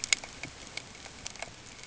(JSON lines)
{"label": "ambient", "recorder": "HydroMoth"}